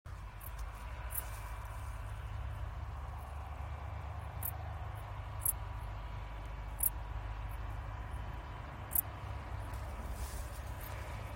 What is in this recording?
Pholidoptera griseoaptera, an orthopteran